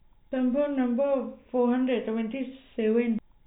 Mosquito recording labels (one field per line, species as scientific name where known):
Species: no mosquito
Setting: cup